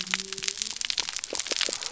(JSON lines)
{"label": "biophony", "recorder": "SoundTrap 300"}